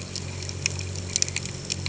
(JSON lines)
{"label": "anthrophony, boat engine", "recorder": "HydroMoth"}